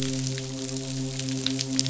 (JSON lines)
{"label": "biophony, midshipman", "recorder": "SoundTrap 500"}